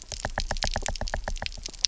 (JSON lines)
{"label": "biophony, knock", "recorder": "SoundTrap 300"}